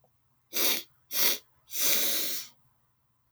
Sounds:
Sniff